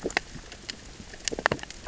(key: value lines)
label: biophony, grazing
recorder: SoundTrap 600 or HydroMoth